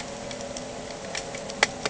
{"label": "anthrophony, boat engine", "recorder": "HydroMoth"}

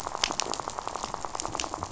{"label": "biophony, rattle", "recorder": "SoundTrap 500"}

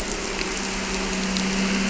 {"label": "anthrophony, boat engine", "recorder": "SoundTrap 300"}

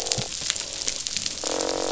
{"label": "biophony, croak", "recorder": "SoundTrap 500"}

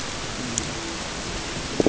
{"label": "ambient", "recorder": "HydroMoth"}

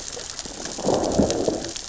{"label": "biophony, growl", "recorder": "SoundTrap 600 or HydroMoth"}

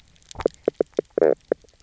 {"label": "biophony, knock croak", "recorder": "SoundTrap 300"}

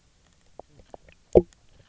{"label": "biophony, knock croak", "recorder": "SoundTrap 300"}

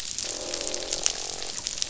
{"label": "biophony, croak", "recorder": "SoundTrap 500"}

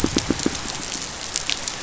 {"label": "biophony, pulse", "recorder": "SoundTrap 500"}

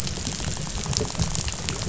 {"label": "biophony, rattle", "recorder": "SoundTrap 500"}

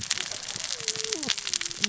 {"label": "biophony, cascading saw", "recorder": "SoundTrap 600 or HydroMoth"}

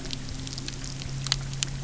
{"label": "anthrophony, boat engine", "recorder": "SoundTrap 300"}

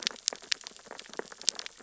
{"label": "biophony, sea urchins (Echinidae)", "recorder": "SoundTrap 600 or HydroMoth"}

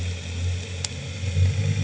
{"label": "anthrophony, boat engine", "recorder": "HydroMoth"}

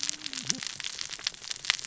{"label": "biophony, cascading saw", "recorder": "SoundTrap 600 or HydroMoth"}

